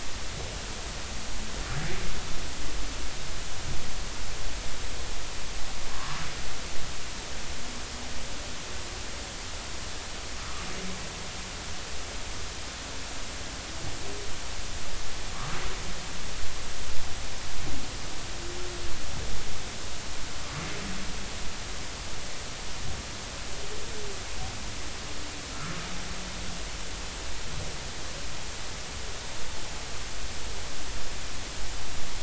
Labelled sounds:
10.4	10.7	humpback whale, 1.1 to 1.4 kHz
25.5	25.8	humpback whale, 1.2 to 1.5 kHz

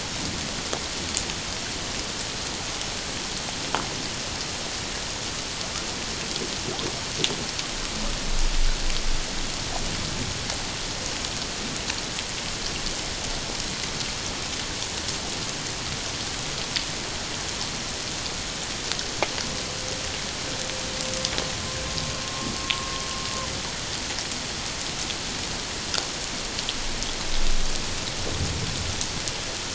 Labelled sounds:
22.2	22.9	humpback whale, 1.0 to 1.1 kHz

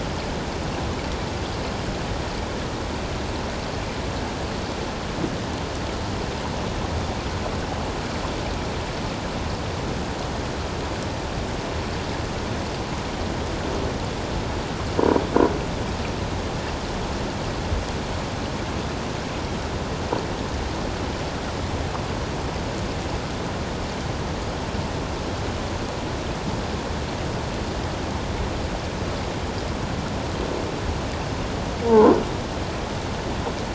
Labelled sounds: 31.9	32.1	croaking sound likely from a nearby submerged object, 0.81 to 1.2 kHz

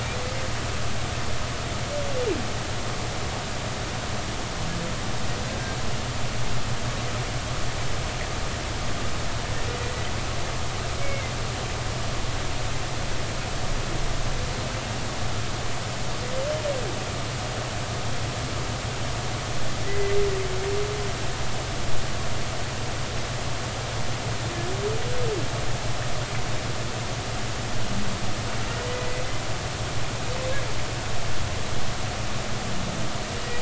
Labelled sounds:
11.0	11.3	humpback whale, 2.0 to 2.3 kHz
19.9	20.2	humpback whale, 1.9 to 2.1 kHz

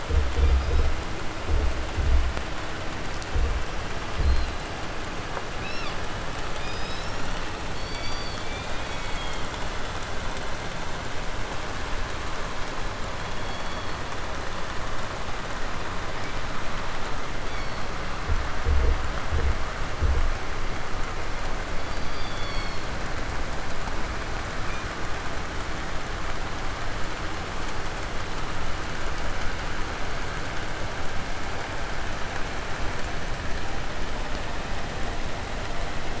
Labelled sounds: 0.1	1.0	killer whale, 1.1 to 5.6 kHz
3.5	4.7	killer whale, southern resident, 3.6 to 6.1 kHz
5.5	6.1	killer whale, 0.66 to 5.9 kHz
6.4	7.5	killer whale, southern resident, 1.6 to 8.0 kHz
7.7	9.7	killer whale, 0.77 to 6.5 kHz
13.1	14.1	killer whale, southern resident, call S16, 1.4 to 6.1 kHz
17.1	17.9	killer whale, 1.7 to 6.0 kHz
21.6	23.0	killer whale, 0.56 to 5.8 kHz
24.6	24.9	killer whale, 1.6 to 6.5 kHz

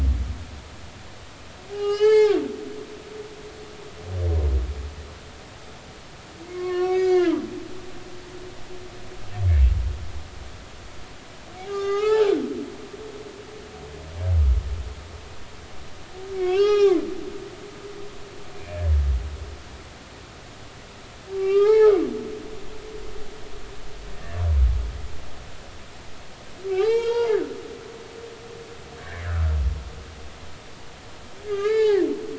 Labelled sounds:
1.7	2.4	humpback whale, 0.80 to 6.6 kHz
6.4	7.4	humpback whale, 1.0 to 6.0 kHz
11.6	12.3	humpback whale, 0.80 to 6.6 kHz
16.4	17.0	humpback whale, 0.80 to 5.9 kHz
21.4	22.0	humpback whale, 0.80 to 4.5 kHz
22.3	22.8	humpback whale, 1.1 to 1.4 kHz
26.7	27.4	humpback whale, 0.80 to 4.8 kHz
29.0	29.3	humpback whale, 1.5 to 2.3 kHz
31.4	32.1	humpback whale, 0.80 to 4.9 kHz

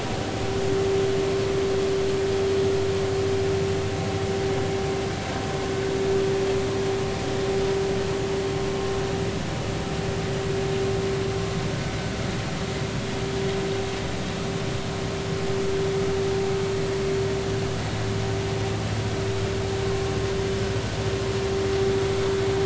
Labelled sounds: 19.9	20.1	vessel noise, 1.0 to 1.2 kHz

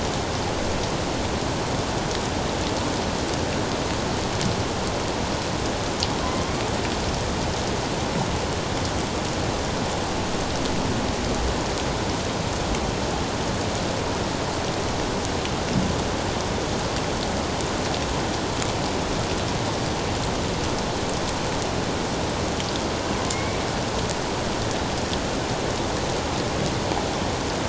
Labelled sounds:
6.2	6.5	killer whale, 0.97 to 1.1 kHz
23.3	23.6	killer whale, 2.1 to 2.4 kHz

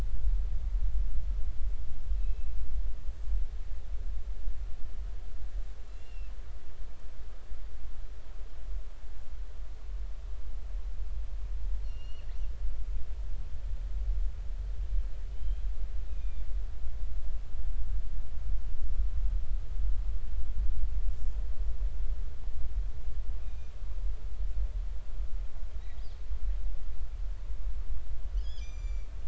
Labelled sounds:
2.1	2.5	killer whale, northern resident, 2.4 to 2.7 kHz
5.9	6.3	killer whale, northern resident, 2.5 to 2.8 kHz
12.0	12.3	killer whale, northern resident, 4.2 to 4.4 kHz
12.8	13.3	killer whale, northern resident, 2.6 to 5.8 kHz
15.3	15.6	killer whale, northern resident, 2.9 to 3.2 kHz
16.1	16.5	killer whale, northern resident, 2.3 to 3.8 kHz
23.4	23.7	killer whale, northern resident, 2.4 to 3.8 kHz
28.4	29.1	killer whale, northern resident, 2.2 to 7.3 kHz

